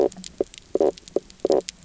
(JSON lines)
{"label": "biophony, knock croak", "recorder": "SoundTrap 300"}